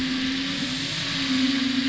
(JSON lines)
{"label": "anthrophony, boat engine", "recorder": "SoundTrap 500"}